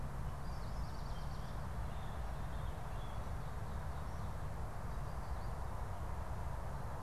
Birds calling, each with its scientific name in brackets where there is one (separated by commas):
unidentified bird